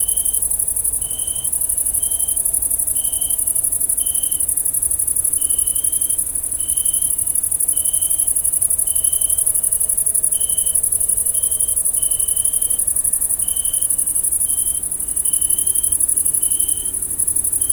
Can an insect be heard?
yes